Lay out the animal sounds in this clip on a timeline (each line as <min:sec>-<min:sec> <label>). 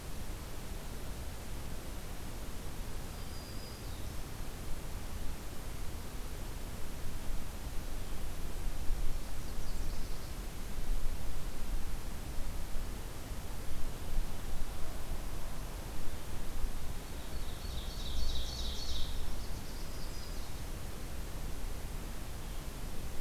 0:03.1-0:04.2 Black-throated Green Warbler (Setophaga virens)
0:09.4-0:10.5 Nashville Warbler (Leiothlypis ruficapilla)
0:17.3-0:19.2 Ovenbird (Seiurus aurocapilla)
0:19.2-0:20.6 Nashville Warbler (Leiothlypis ruficapilla)